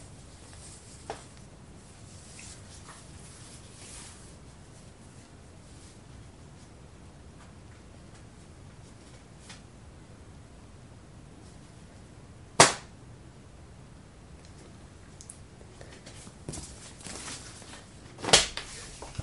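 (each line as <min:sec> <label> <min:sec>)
0:00.0 Muffled sounds of clothing rustling. 0:12.5
0:12.5 A loud clap. 0:13.0
0:15.1 Lips opening with a moist sound. 0:15.4
0:15.7 Muffled feminine inhaling sound. 0:16.2
0:16.4 Footsteps muffled. 0:17.5
0:18.2 A sharp clap. 0:18.7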